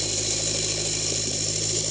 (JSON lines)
{"label": "anthrophony, boat engine", "recorder": "HydroMoth"}